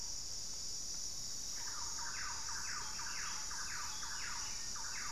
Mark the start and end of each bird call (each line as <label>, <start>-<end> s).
Buff-throated Saltator (Saltator maximus), 0.0-4.8 s
Thrush-like Wren (Campylorhynchus turdinus), 0.9-5.1 s